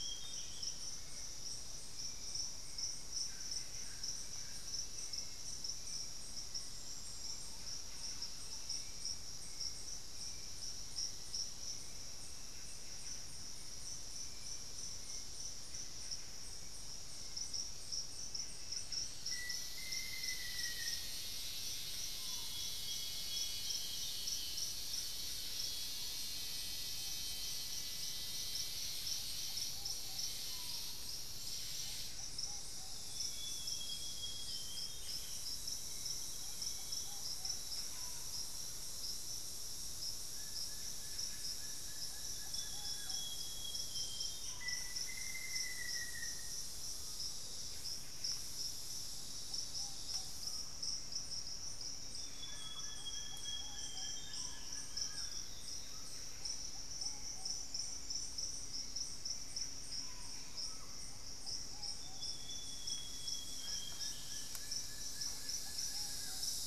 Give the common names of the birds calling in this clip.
Amazonian Grosbeak, Hauxwell's Thrush, Buff-breasted Wren, Solitary Black Cacique, Thrush-like Wren, Black-faced Antthrush, Screaming Piha, Ruddy Pigeon, Plain-winged Antshrike, Olivaceous Woodcreeper